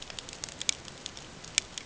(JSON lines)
{"label": "ambient", "recorder": "HydroMoth"}